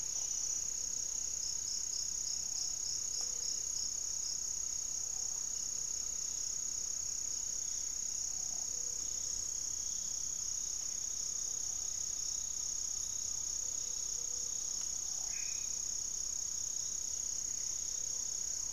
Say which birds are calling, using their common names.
Buff-breasted Wren, Great Antshrike, Gray-fronted Dove, unidentified bird, Black-faced Antthrush, Black-tailed Trogon